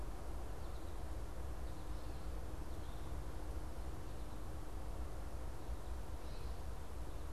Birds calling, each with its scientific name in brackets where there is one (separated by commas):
American Goldfinch (Spinus tristis), Eastern Towhee (Pipilo erythrophthalmus)